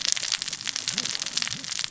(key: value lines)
label: biophony, cascading saw
recorder: SoundTrap 600 or HydroMoth